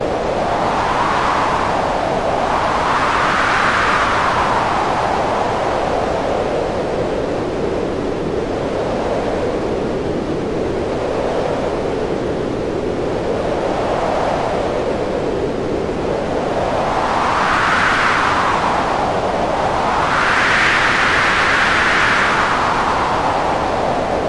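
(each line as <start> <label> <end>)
0.0 A powerful, continuous howling wind. 24.3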